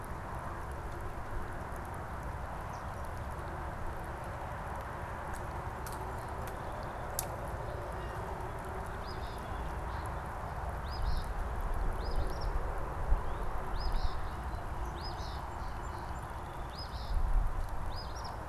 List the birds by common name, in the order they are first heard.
Blue Jay, Eastern Phoebe, Northern Cardinal, Song Sparrow